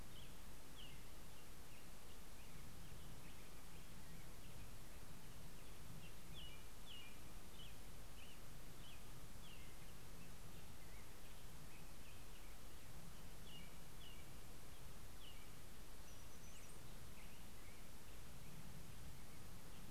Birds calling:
Black-headed Grosbeak (Pheucticus melanocephalus)
Brown-headed Cowbird (Molothrus ater)
American Robin (Turdus migratorius)

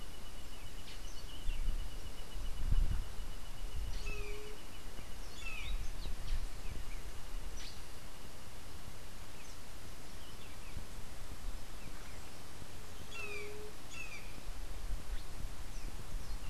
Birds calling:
Buff-throated Saltator (Saltator maximus)
Black-headed Saltator (Saltator atriceps)
White-tipped Dove (Leptotila verreauxi)
Brown Jay (Psilorhinus morio)

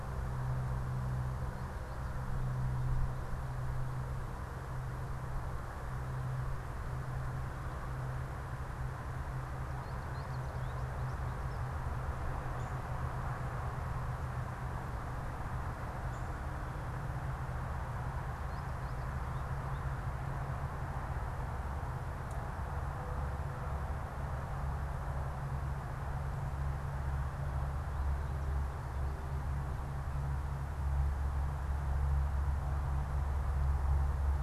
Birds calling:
Downy Woodpecker (Dryobates pubescens)
American Goldfinch (Spinus tristis)

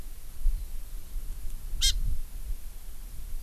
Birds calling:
Hawaii Amakihi (Chlorodrepanis virens)

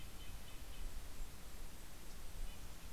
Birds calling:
Yellow-rumped Warbler (Setophaga coronata)
Red-breasted Nuthatch (Sitta canadensis)
Golden-crowned Kinglet (Regulus satrapa)

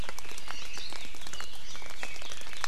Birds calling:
Hawaii Amakihi (Chlorodrepanis virens)
Red-billed Leiothrix (Leiothrix lutea)

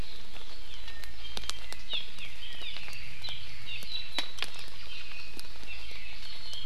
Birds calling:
Iiwi (Drepanis coccinea)
Hawaii Amakihi (Chlorodrepanis virens)

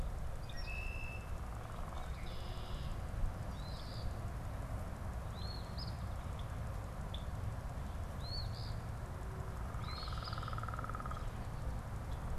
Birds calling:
Eastern Phoebe (Sayornis phoebe)
Red-winged Blackbird (Agelaius phoeniceus)
unidentified bird

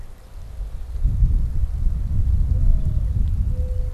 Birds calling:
Mourning Dove (Zenaida macroura)

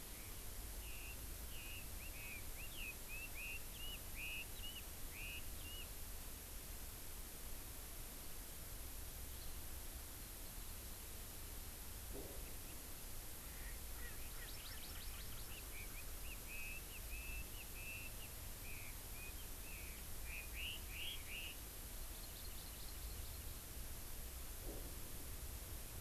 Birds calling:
Chinese Hwamei (Garrulax canorus)
Hawaii Amakihi (Chlorodrepanis virens)
Erckel's Francolin (Pternistis erckelii)

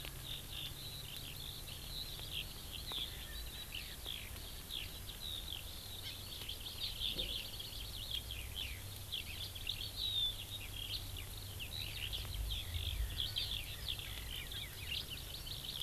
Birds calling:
Eurasian Skylark (Alauda arvensis)
Hawaii Amakihi (Chlorodrepanis virens)
Erckel's Francolin (Pternistis erckelii)

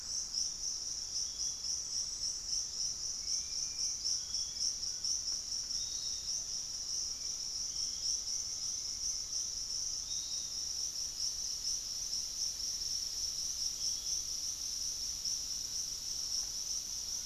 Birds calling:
Piratic Flycatcher (Legatus leucophaius)
Dusky-capped Flycatcher (Myiarchus tuberculifer)
Ringed Woodpecker (Celeus torquatus)
Fasciated Antshrike (Cymbilaimus lineatus)
Thrush-like Wren (Campylorhynchus turdinus)

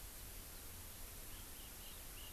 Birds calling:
Chinese Hwamei (Garrulax canorus)

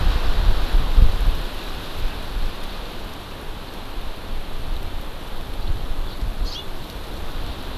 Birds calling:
House Finch (Haemorhous mexicanus)

